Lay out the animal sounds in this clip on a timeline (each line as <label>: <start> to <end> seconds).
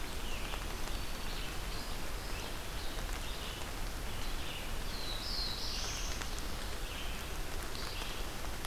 Red-eyed Vireo (Vireo olivaceus): 0.0 to 8.7 seconds
Black-throated Green Warbler (Setophaga virens): 0.7 to 1.5 seconds
Black-throated Blue Warbler (Setophaga caerulescens): 4.7 to 6.3 seconds